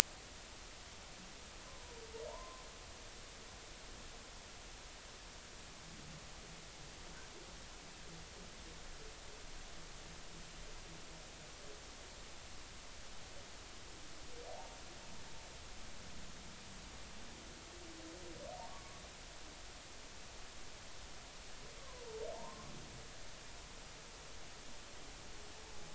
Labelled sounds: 1.7	2.6	humpback whale, 0.86 to 1.1 kHz
14.5	14.8	humpback whale, 0.80 to 0.96 kHz
18.7	19.0	humpback whale, 1.0 to 1.2 kHz
21.8	22.7	humpback whale, 0.80 to 1.2 kHz

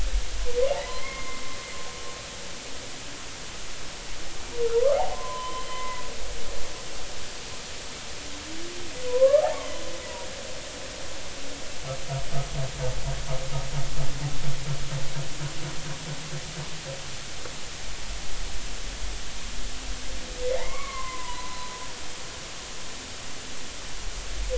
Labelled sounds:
0.8	1.4	humpback whale, 0.96 to 2.2 kHz
4.7	6.1	humpback whale, 0.86 to 3.1 kHz
9.1	9.7	humpback whale, 0.80 to 1.4 kHz
20.4	21.7	humpback whale, 0.86 to 2.3 kHz

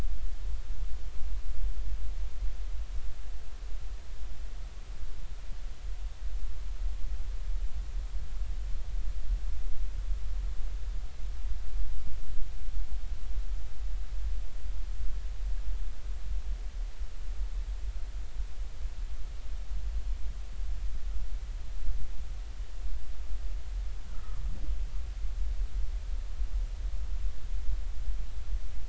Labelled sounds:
24.1	24.4	humpback whale, 1.1 to 1.4 kHz

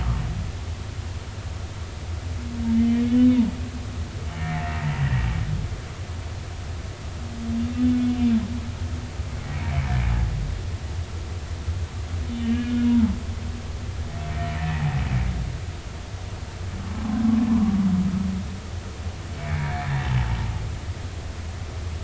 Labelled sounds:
2.7	3.4	humpback whale, 2.9 to 3.8 kHz
4.5	5.2	humpback whale, 1.7 to 2.1 kHz
7.9	8.2	humpback whale, 2.2 to 2.3 kHz
9.1	9.3	humpback whale, 2.8 to 3.0 kHz
12.3	13.2	humpback whale, 0.83 to 3.1 kHz
14.6	15.0	humpback whale, 0.80 to 2.0 kHz
19.4	19.7	humpback whale, 2.1 to 2.4 kHz

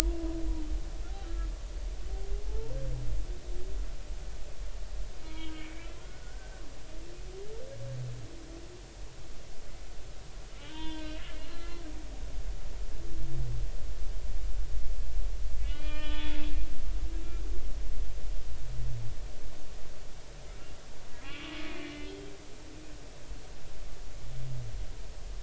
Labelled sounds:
0.0	0.4	humpback whale, 0.93 to 1.1 kHz
1.2	1.5	humpback whale, 1.3 to 1.6 kHz
2.5	2.8	humpback whale, 0.80 to 1.0 kHz
5.2	5.6	humpback whale, 1.2 to 3.4 kHz
7.0	7.6	humpback whale, 1.4 to 1.6 kHz
10.5	11.8	humpback whale, 0.86 to 4.2 kHz
15.6	16.4	humpback whale, 0.86 to 4.9 kHz
21.2	22.1	humpback whale, 1.0 to 3.5 kHz

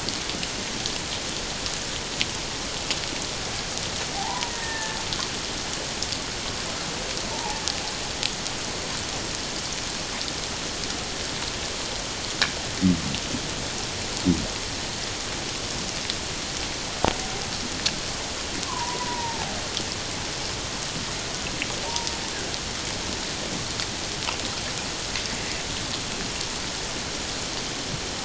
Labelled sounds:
4.2	5.0	killer whale, 0.78 to 1.9 kHz
7.3	7.6	killer whale, 0.78 to 1.0 kHz
18.7	19.5	killer whale, 0.78 to 1.2 kHz

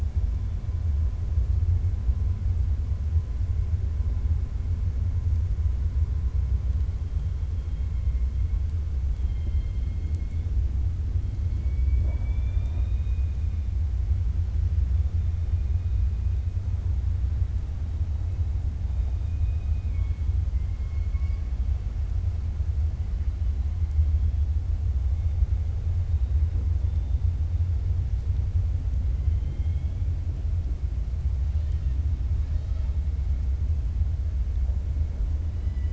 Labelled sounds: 9.1	10.4	killer whale, 2.1 to 4.2 kHz
19.1	20.2	killer whale, 2.2 to 3.3 kHz
20.5	21.4	killer whale, 1.7 to 2.9 kHz
29.2	30.0	killer whale, 2.1 to 3.4 kHz

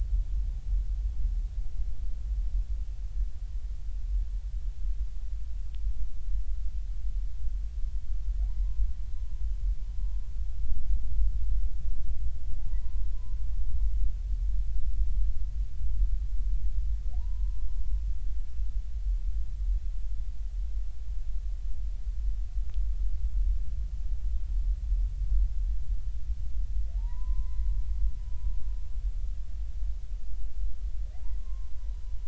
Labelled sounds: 9.2	9.4	humpback whale, 0.96 to 1.1 kHz
12.6	13.1	humpback whale, 0.80 to 1.1 kHz
17.1	17.7	humpback whale, 0.80 to 1.1 kHz
26.9	27.7	humpback whale, 0.80 to 2.1 kHz
31.1	31.7	humpback whale, 0.80 to 1.1 kHz

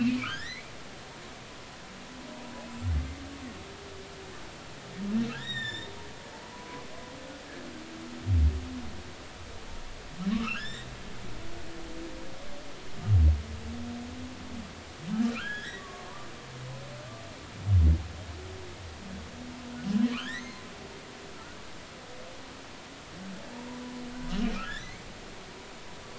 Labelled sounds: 0.0	0.7	humpback whale, 1.2 to 3.8 kHz
5.3	5.9	humpback whale, 1.5 to 7.6 kHz
6.5	6.8	humpback whale, 0.93 to 1.1 kHz
10.3	10.9	humpback whale, 1.0 to 5.5 kHz
15.3	16.3	humpback whale, 0.86 to 3.9 kHz
20.1	21.6	humpback whale, 1.0 to 4.3 kHz
24.6	25.0	humpback whale, 1.6 to 2.3 kHz

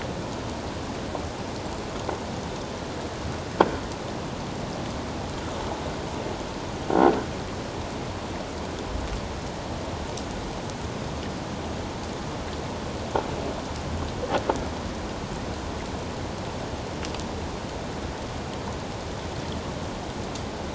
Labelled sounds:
6.9	7.2	croaking sound likely from a nearby submerged object, 1.3 to 1.6 kHz

